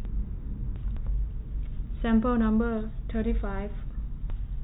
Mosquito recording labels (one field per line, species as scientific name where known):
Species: no mosquito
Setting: cup